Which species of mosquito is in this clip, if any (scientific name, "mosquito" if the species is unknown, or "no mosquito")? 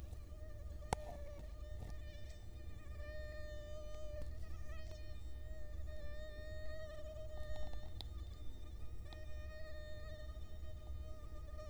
Culex quinquefasciatus